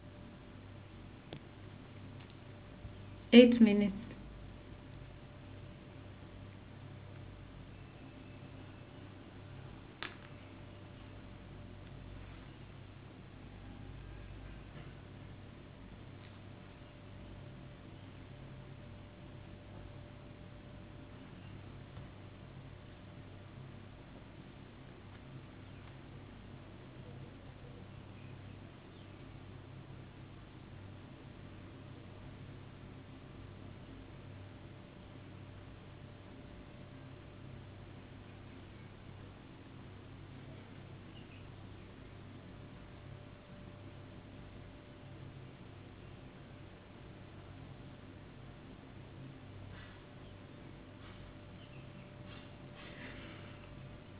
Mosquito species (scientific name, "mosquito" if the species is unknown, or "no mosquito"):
no mosquito